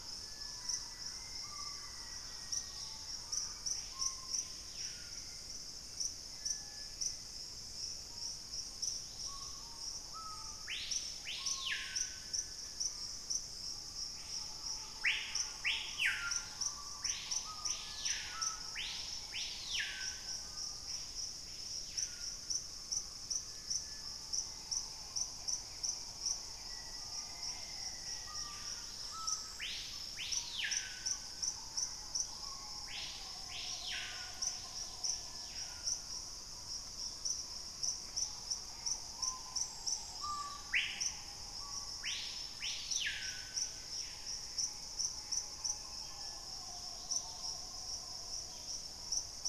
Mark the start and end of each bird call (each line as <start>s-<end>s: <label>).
0.0s-4.4s: Thrush-like Wren (Campylorhynchus turdinus)
0.0s-9.9s: Dusky-capped Greenlet (Pachysylvia hypoxantha)
0.0s-49.5s: Screaming Piha (Lipaugus vociferans)
0.6s-3.1s: Black-faced Antthrush (Formicarius analis)
2.7s-6.0s: Hauxwell's Thrush (Turdus hauxwelli)
7.2s-9.7s: Black-capped Becard (Pachyramphus marginatus)
15.7s-17.1s: Dusky-capped Greenlet (Pachysylvia hypoxantha)
24.2s-27.1s: Hauxwell's Thrush (Turdus hauxwelli)
25.5s-27.3s: Buff-breasted Wren (Cantorchilus leucotis)
26.6s-29.1s: Black-faced Antthrush (Formicarius analis)
28.6s-35.4s: Dusky-capped Greenlet (Pachysylvia hypoxantha)
28.7s-32.5s: Thrush-like Wren (Campylorhynchus turdinus)
39.9s-40.9s: Dusky-capped Greenlet (Pachysylvia hypoxantha)
40.9s-43.1s: Black-faced Antthrush (Formicarius analis)
46.6s-47.7s: Dusky-capped Greenlet (Pachysylvia hypoxantha)
48.3s-48.9s: White-crested Spadebill (Platyrinchus platyrhynchos)